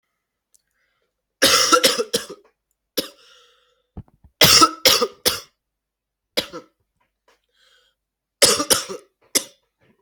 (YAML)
expert_labels:
- quality: ok
  cough_type: dry
  dyspnea: false
  wheezing: false
  stridor: false
  choking: false
  congestion: false
  nothing: true
  diagnosis: lower respiratory tract infection
  severity: mild
- quality: good
  cough_type: wet
  dyspnea: false
  wheezing: false
  stridor: false
  choking: false
  congestion: false
  nothing: true
  diagnosis: lower respiratory tract infection
  severity: mild
- quality: good
  cough_type: wet
  dyspnea: false
  wheezing: false
  stridor: false
  choking: false
  congestion: false
  nothing: true
  diagnosis: upper respiratory tract infection
  severity: severe
- quality: good
  cough_type: dry
  dyspnea: false
  wheezing: false
  stridor: false
  choking: false
  congestion: false
  nothing: true
  diagnosis: upper respiratory tract infection
  severity: mild